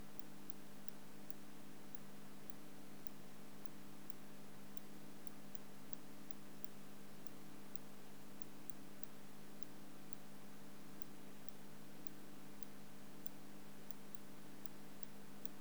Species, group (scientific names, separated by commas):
Cyrtaspis scutata, Orthoptera